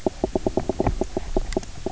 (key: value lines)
label: biophony, knock croak
recorder: SoundTrap 300